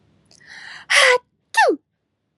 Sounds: Sneeze